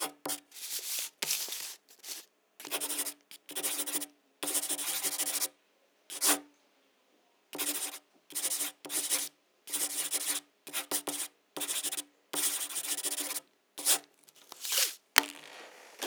does the writing pause and then start again at any point?
yes